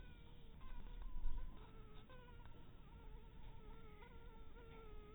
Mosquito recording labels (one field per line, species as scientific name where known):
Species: Anopheles harrisoni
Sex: female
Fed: unfed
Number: one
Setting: cup